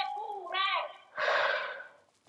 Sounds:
Sigh